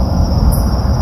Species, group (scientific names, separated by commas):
Microcentrum rhombifolium, Orthoptera